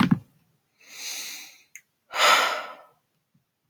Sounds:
Sigh